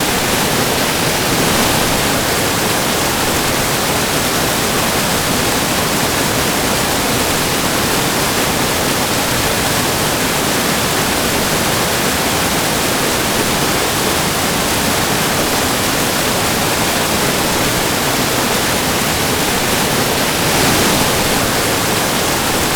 Is there a car crash?
no